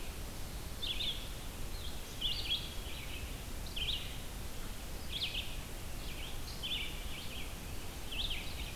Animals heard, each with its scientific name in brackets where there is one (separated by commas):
Red-eyed Vireo (Vireo olivaceus)